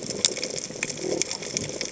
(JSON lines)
{"label": "biophony", "recorder": "HydroMoth"}